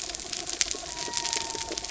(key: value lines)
label: anthrophony, mechanical
recorder: SoundTrap 300

label: biophony
recorder: SoundTrap 300